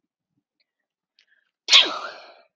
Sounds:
Sneeze